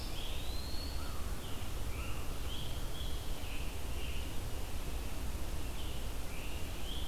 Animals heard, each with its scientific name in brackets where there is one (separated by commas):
Red-eyed Vireo (Vireo olivaceus), Eastern Wood-Pewee (Contopus virens), Scarlet Tanager (Piranga olivacea)